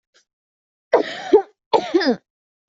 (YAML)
expert_labels:
- quality: good
  cough_type: dry
  dyspnea: false
  wheezing: false
  stridor: false
  choking: false
  congestion: false
  nothing: true
  diagnosis: COVID-19
  severity: mild